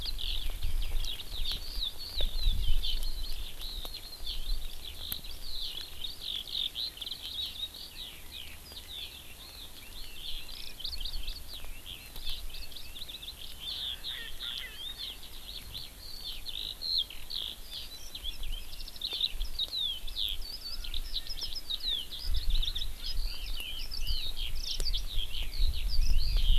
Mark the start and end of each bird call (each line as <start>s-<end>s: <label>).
0.0s-26.6s: Eurasian Skylark (Alauda arvensis)
14.1s-14.3s: Erckel's Francolin (Pternistis erckelii)
14.6s-14.8s: Erckel's Francolin (Pternistis erckelii)
20.5s-23.6s: Erckel's Francolin (Pternistis erckelii)